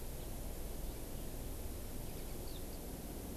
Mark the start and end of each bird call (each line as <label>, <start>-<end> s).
Eurasian Skylark (Alauda arvensis), 2.4-2.8 s